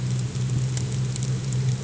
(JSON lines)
{"label": "anthrophony, boat engine", "recorder": "HydroMoth"}